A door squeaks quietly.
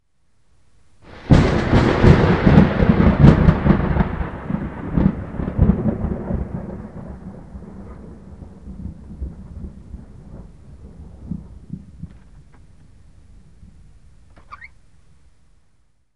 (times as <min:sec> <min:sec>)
0:14.4 0:14.8